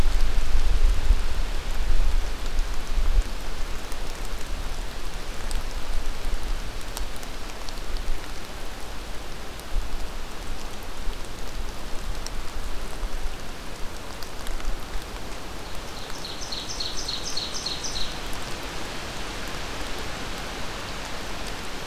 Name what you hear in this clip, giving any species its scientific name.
Seiurus aurocapilla